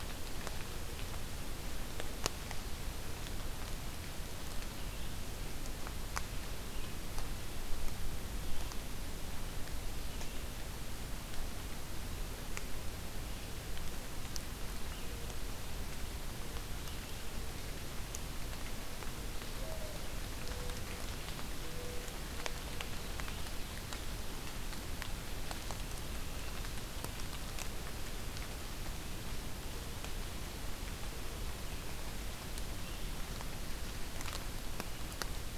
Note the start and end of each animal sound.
[4.76, 10.44] Red-eyed Vireo (Vireo olivaceus)
[19.50, 22.29] Mourning Dove (Zenaida macroura)

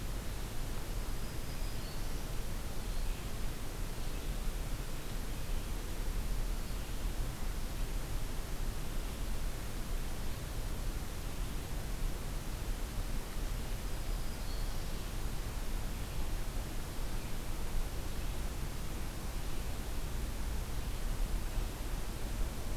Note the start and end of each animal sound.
[0.00, 7.03] Red-eyed Vireo (Vireo olivaceus)
[0.88, 2.19] Black-throated Green Warbler (Setophaga virens)
[13.67, 15.07] Black-throated Green Warbler (Setophaga virens)

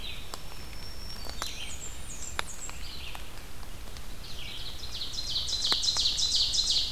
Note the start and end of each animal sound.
[0.00, 1.76] Black-throated Green Warbler (Setophaga virens)
[0.00, 4.79] Red-eyed Vireo (Vireo olivaceus)
[1.43, 2.93] Blackburnian Warbler (Setophaga fusca)
[4.68, 6.92] Ovenbird (Seiurus aurocapilla)

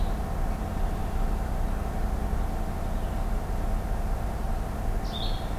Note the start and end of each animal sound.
[4.97, 5.48] Blue-headed Vireo (Vireo solitarius)

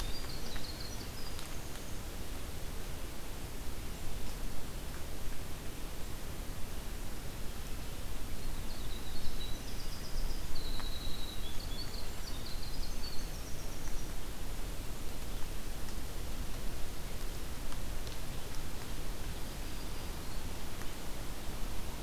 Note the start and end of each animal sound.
[0.00, 1.89] Winter Wren (Troglodytes hiemalis)
[8.21, 14.18] Winter Wren (Troglodytes hiemalis)
[19.19, 20.55] Black-throated Green Warbler (Setophaga virens)

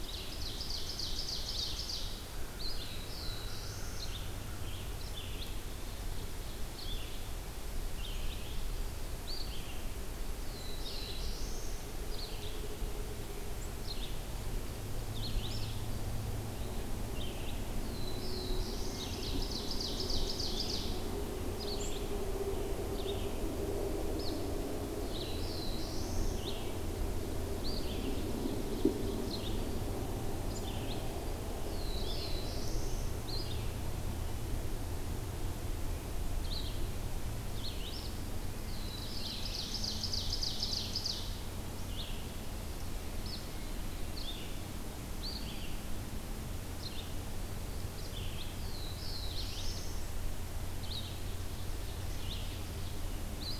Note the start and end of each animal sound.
[0.00, 2.20] Ovenbird (Seiurus aurocapilla)
[0.00, 5.56] Red-eyed Vireo (Vireo olivaceus)
[2.62, 4.19] Black-throated Blue Warbler (Setophaga caerulescens)
[5.28, 6.92] Ovenbird (Seiurus aurocapilla)
[6.60, 53.59] Red-eyed Vireo (Vireo olivaceus)
[10.29, 11.91] Black-throated Blue Warbler (Setophaga caerulescens)
[17.69, 19.27] Black-throated Blue Warbler (Setophaga caerulescens)
[18.74, 20.94] Ovenbird (Seiurus aurocapilla)
[25.00, 26.49] Black-throated Blue Warbler (Setophaga caerulescens)
[27.70, 29.76] Ovenbird (Seiurus aurocapilla)
[31.53, 33.05] Black-throated Blue Warbler (Setophaga caerulescens)
[38.56, 41.68] Ovenbird (Seiurus aurocapilla)
[48.33, 50.04] Black-throated Blue Warbler (Setophaga caerulescens)
[50.88, 53.11] Ovenbird (Seiurus aurocapilla)

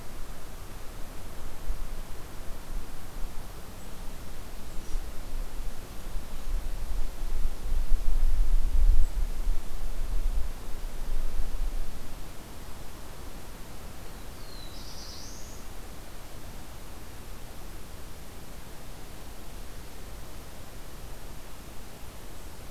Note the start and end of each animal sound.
[14.25, 15.67] Black-throated Blue Warbler (Setophaga caerulescens)

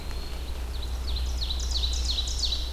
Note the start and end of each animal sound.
[0.00, 2.72] Red-eyed Vireo (Vireo olivaceus)
[0.68, 2.72] Ovenbird (Seiurus aurocapilla)

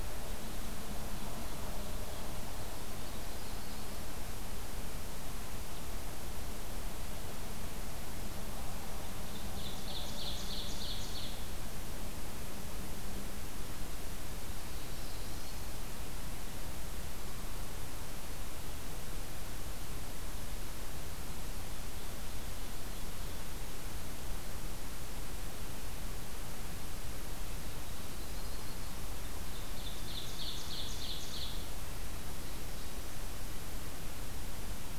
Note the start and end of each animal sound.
[0.00, 1.11] Red Crossbill (Loxia curvirostra)
[0.90, 2.27] Ovenbird (Seiurus aurocapilla)
[2.72, 3.97] Yellow-rumped Warbler (Setophaga coronata)
[9.03, 11.47] Ovenbird (Seiurus aurocapilla)
[14.62, 15.79] Black-throated Blue Warbler (Setophaga caerulescens)
[27.73, 28.98] Yellow-rumped Warbler (Setophaga coronata)
[29.22, 31.61] Ovenbird (Seiurus aurocapilla)

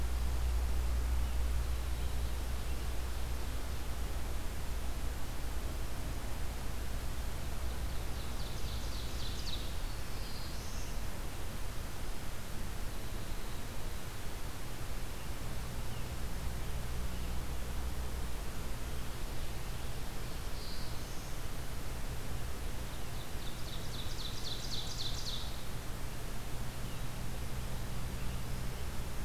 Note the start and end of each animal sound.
[7.47, 9.89] Ovenbird (Seiurus aurocapilla)
[9.40, 11.32] Black-throated Blue Warbler (Setophaga caerulescens)
[19.82, 21.51] Black-throated Blue Warbler (Setophaga caerulescens)
[23.00, 25.45] Ovenbird (Seiurus aurocapilla)

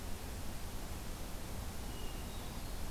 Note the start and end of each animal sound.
[1.75, 2.91] Hermit Thrush (Catharus guttatus)

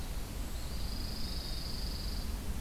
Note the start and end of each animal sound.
[0.37, 1.60] Eastern Wood-Pewee (Contopus virens)
[0.49, 2.45] Pine Warbler (Setophaga pinus)

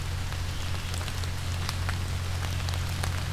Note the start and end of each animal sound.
[0.24, 3.33] Red-eyed Vireo (Vireo olivaceus)

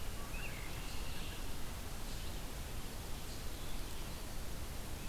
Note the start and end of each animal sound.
[0.24, 1.60] Red-winged Blackbird (Agelaius phoeniceus)

